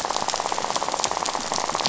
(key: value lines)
label: biophony, rattle
recorder: SoundTrap 500